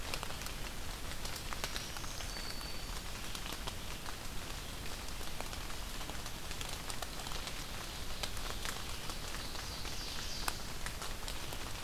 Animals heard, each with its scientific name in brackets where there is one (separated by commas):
Black-throated Green Warbler (Setophaga virens), Ovenbird (Seiurus aurocapilla)